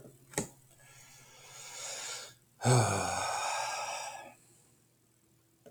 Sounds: Sigh